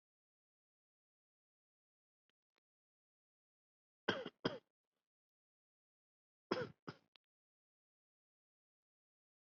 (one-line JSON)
{"expert_labels": [{"quality": "ok", "cough_type": "dry", "dyspnea": false, "wheezing": false, "stridor": false, "choking": false, "congestion": false, "nothing": true, "diagnosis": "healthy cough", "severity": "pseudocough/healthy cough"}], "age": 32, "gender": "male", "respiratory_condition": true, "fever_muscle_pain": false, "status": "healthy"}